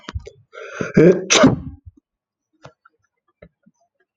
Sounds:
Sneeze